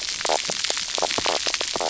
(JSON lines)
{"label": "biophony, knock croak", "recorder": "SoundTrap 300"}